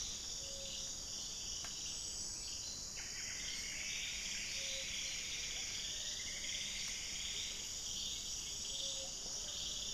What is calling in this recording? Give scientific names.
Leptotila rufaxilla, Myrmelastes hyperythrus, Capito auratus